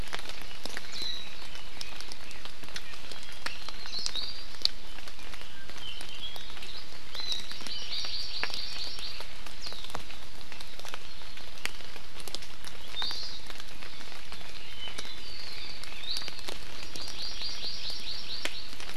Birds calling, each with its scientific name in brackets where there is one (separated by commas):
Iiwi (Drepanis coccinea), Apapane (Himatione sanguinea), Hawaii Amakihi (Chlorodrepanis virens)